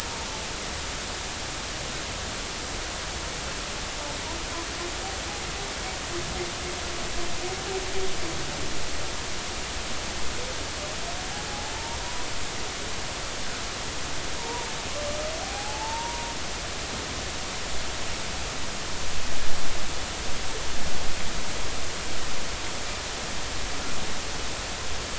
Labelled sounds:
11.7	12.3	humpback whale, 0.86 to 1.0 kHz
14.4	14.7	humpback whale, 0.86 to 1.1 kHz
15.4	16.3	humpback whale, 0.80 to 0.99 kHz

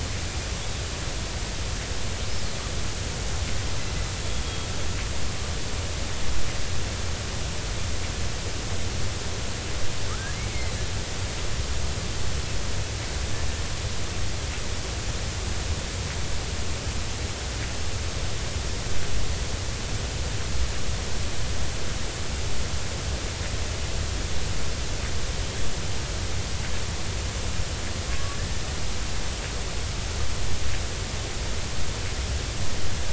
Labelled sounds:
4.4	4.7	killer whale, Bigg's (transient), 3.2 to 3.4 kHz
10.1	10.7	killer whale, Bigg's (transient), 1.2 to 2.3 kHz
28.1	28.4	killer whale, Bigg's (transient), 1.1 to 1.2 kHz

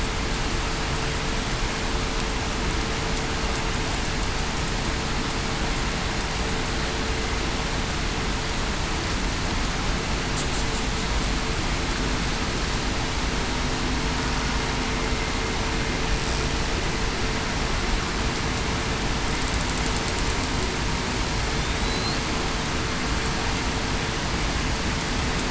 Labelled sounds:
21.8	22.2	killer whale, southern resident, 3.9 to 4.5 kHz

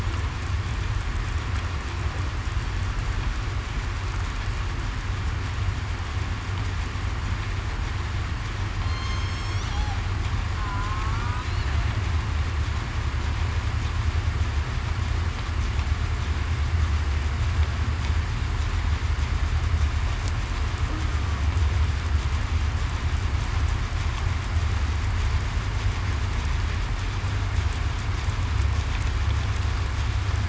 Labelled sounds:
8.8	9.6	killer whale, southern resident, 3.1 to 8.0 kHz

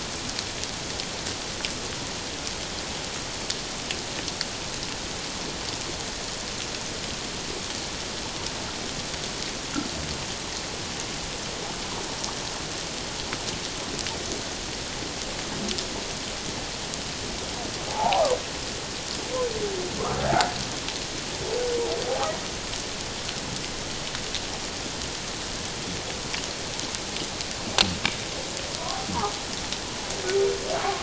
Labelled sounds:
17.9	18.3	humpback whale, 0.78 to 1.1 kHz

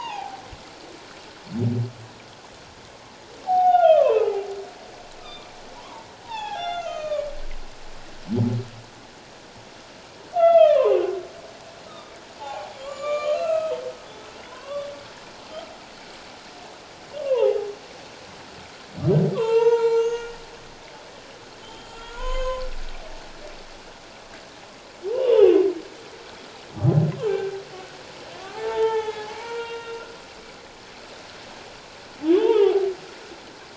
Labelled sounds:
3.4	4.5	humpback whale, 0.78 to 3.0 kHz
5.2	7.3	humpback whale, 0.78 to 7.0 kHz
10.4	11.0	humpback whale, 0.91 to 3.5 kHz
11.9	13.7	humpback whale, 0.78 to 7.8 kHz
14.5	14.9	humpback whale, 0.94 to 1.2 kHz
17.2	17.7	humpback whale, 0.78 to 1.2 kHz
19.3	20.4	humpback whale, 0.81 to 6.7 kHz
21.6	22.7	humpback whale, 0.91 to 7.1 kHz
25.1	25.5	humpback whale, 0.81 to 3.6 kHz
27.3	27.6	humpback whale, 1.5 to 1.6 kHz
28.5	30.0	humpback whale, 0.78 to 3.8 kHz
32.3	32.9	humpback whale, 0.78 to 3.7 kHz

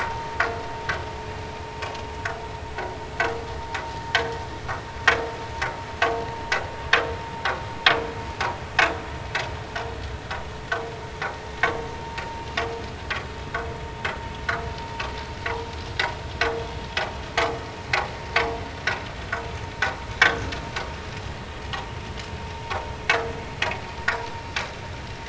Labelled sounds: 4.1	4.3	vessel noise, 1.5 to 1.8 kHz

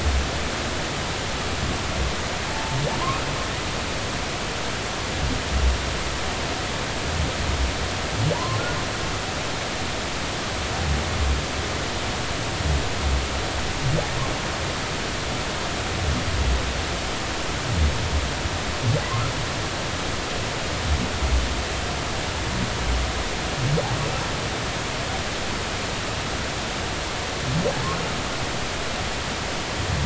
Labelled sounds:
2.5	2.8	humpback whale, 0.83 to 0.93 kHz
8.3	8.6	humpback whale, 0.90 to 1.1 kHz

